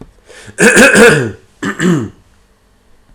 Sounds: Throat clearing